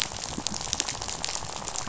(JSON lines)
{"label": "biophony, rattle", "recorder": "SoundTrap 500"}